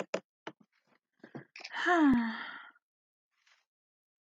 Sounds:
Sigh